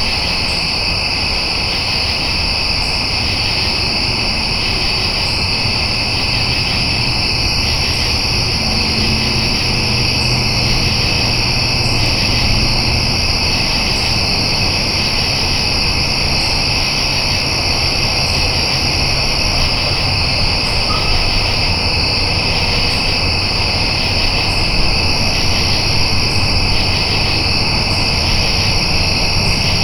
Is this outside?
yes